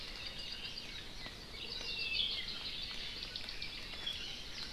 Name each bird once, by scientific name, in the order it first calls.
Loxops mana